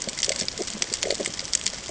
{"label": "ambient", "recorder": "HydroMoth"}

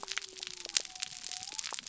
{"label": "biophony", "recorder": "SoundTrap 300"}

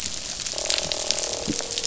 {"label": "biophony, croak", "recorder": "SoundTrap 500"}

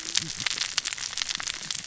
{"label": "biophony, cascading saw", "recorder": "SoundTrap 600 or HydroMoth"}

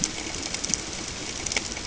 {"label": "ambient", "recorder": "HydroMoth"}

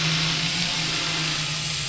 {"label": "anthrophony, boat engine", "recorder": "SoundTrap 500"}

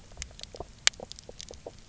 {"label": "biophony, knock croak", "recorder": "SoundTrap 300"}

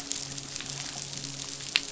{"label": "biophony, midshipman", "recorder": "SoundTrap 500"}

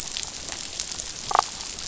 {"label": "biophony, damselfish", "recorder": "SoundTrap 500"}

